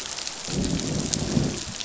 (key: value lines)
label: biophony, growl
recorder: SoundTrap 500